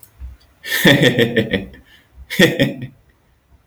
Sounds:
Laughter